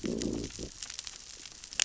{"label": "biophony, growl", "recorder": "SoundTrap 600 or HydroMoth"}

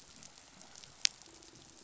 {"label": "biophony", "recorder": "SoundTrap 500"}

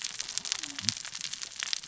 {"label": "biophony, cascading saw", "recorder": "SoundTrap 600 or HydroMoth"}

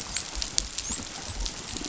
{"label": "biophony, dolphin", "recorder": "SoundTrap 500"}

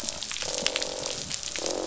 {"label": "biophony, croak", "recorder": "SoundTrap 500"}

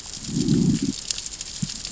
{"label": "biophony, growl", "recorder": "SoundTrap 600 or HydroMoth"}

